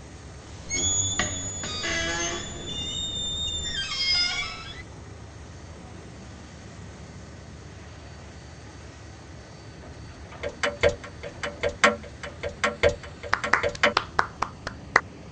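First, at the start, squeaking can be heard. After that, about 10 seconds in, there is the sound of a clock. While that goes on, about 13 seconds in, you can hear clapping.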